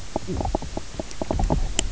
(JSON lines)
{"label": "biophony, knock croak", "recorder": "SoundTrap 300"}